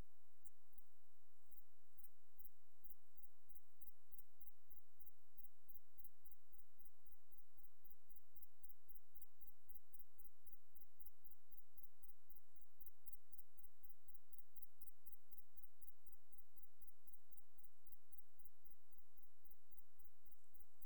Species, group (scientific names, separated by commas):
Eupholidoptera schmidti, Orthoptera